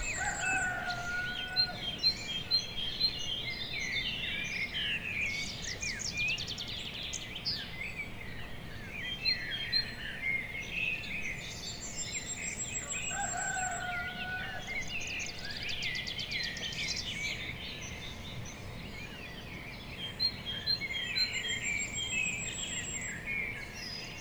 What animals are heard chirpping?
birds